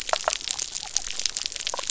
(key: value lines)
label: biophony
recorder: SoundTrap 300